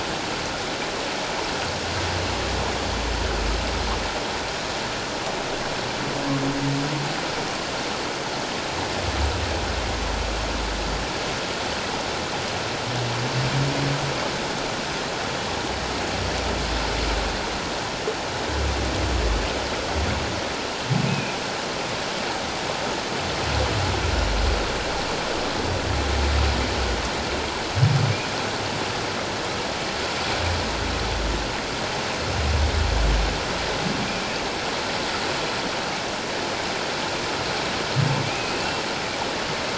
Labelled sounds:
21.1	21.4	humpback whale, 2.3 to 2.7 kHz
38.2	38.6	humpback whale, 2.2 to 2.6 kHz

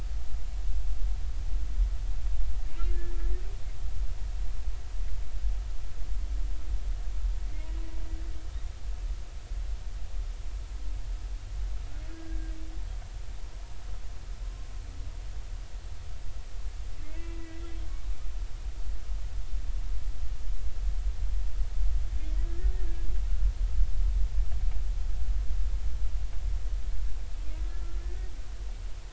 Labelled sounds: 2.8	3.1	humpback whale, 1.6 to 1.8 kHz
12.1	12.4	humpback whale, 1.5 to 1.7 kHz
17.1	17.6	humpback whale, 1.9 to 2.8 kHz
22.5	22.7	humpback whale, 1.6 to 1.9 kHz
27.7	28.0	humpback whale, 1.3 to 1.4 kHz

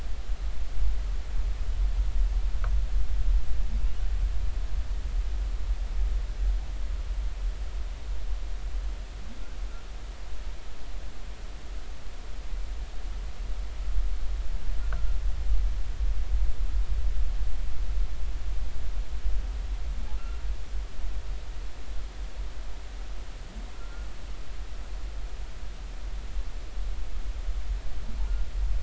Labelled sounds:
23.8	24.1	humpback whale, 1.3 to 1.5 kHz

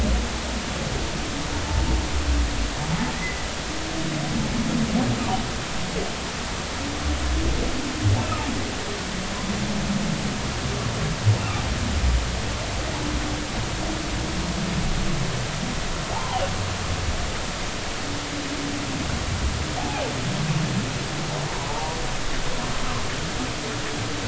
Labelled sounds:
3.1	3.4	humpback whale, 1.8 to 2.1 kHz
16.1	16.4	humpback whale, 0.80 to 1.1 kHz
19.8	20.1	humpback whale, 0.80 to 0.90 kHz
21.7	22.0	humpback whale, 0.80 to 0.99 kHz

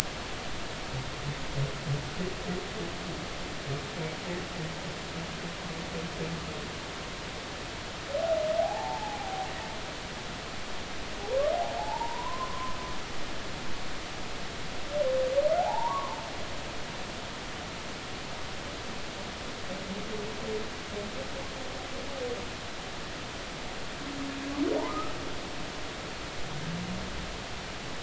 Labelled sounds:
8.6	9.5	humpback whale, 0.80 to 0.96 kHz
11.7	12.7	humpback whale, 0.80 to 1.1 kHz
15.6	16.2	humpback whale, 0.80 to 1.2 kHz
24.7	25.1	humpback whale, 0.80 to 1.3 kHz

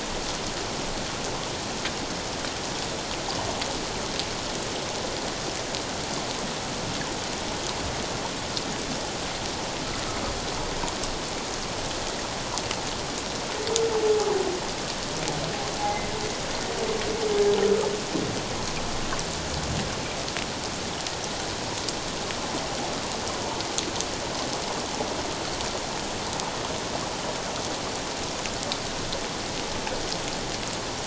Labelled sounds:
15.8	16.1	humpback whale, 2.0 to 2.1 kHz

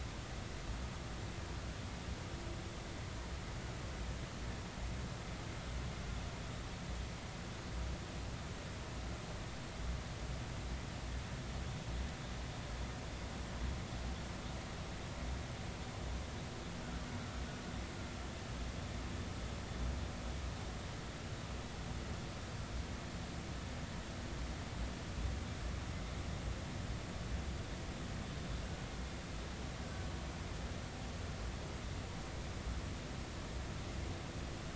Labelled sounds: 29.8	30.1	killer whale, Bigg's (transient), 1.5 to 1.6 kHz

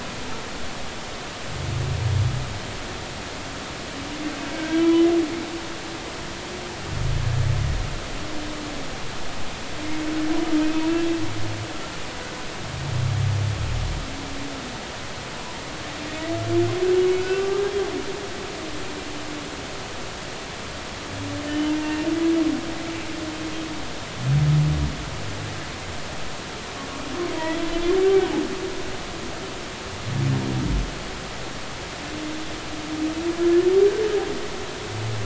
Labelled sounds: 4.6	5.1	humpback whale, 1.5 to 3.1 kHz
10.6	10.9	humpback whale, 2.5 to 2.6 kHz
17.2	17.7	humpback whale, 1.1 to 1.6 kHz
21.5	22.1	humpback whale, 2.7 to 3.1 kHz
28.0	28.3	humpback whale, 1.4 to 1.6 kHz

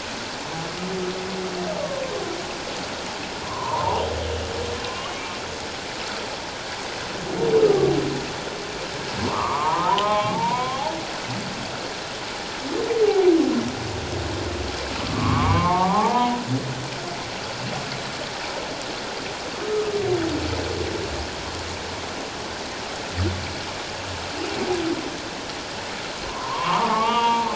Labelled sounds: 1.8	2.0	humpback whale, 1.0 to 1.2 kHz
3.4	4.0	humpback whale, 0.78 to 1.3 kHz
4.8	5.3	humpback whale, 1.0 to 2.9 kHz
7.6	7.9	humpback whale, 1.1 to 1.3 kHz
9.3	10.9	humpback whale, 0.78 to 2.4 kHz
15.0	16.4	humpback whale, 0.78 to 2.3 kHz
26.2	27.5	humpback whale, 0.81 to 3.4 kHz

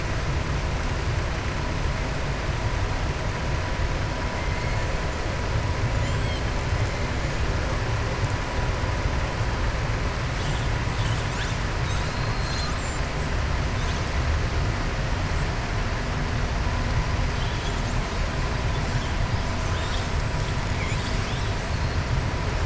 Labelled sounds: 5.9	6.5	killer whale, southern resident, 6.8 to 8.0 kHz
11.8	13.1	killer whale, southern resident, 3.3 to 7.9 kHz

